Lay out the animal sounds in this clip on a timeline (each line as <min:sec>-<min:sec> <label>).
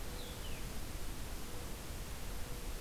0:00.0-0:02.8 Mourning Dove (Zenaida macroura)
0:00.1-0:00.7 Blue-headed Vireo (Vireo solitarius)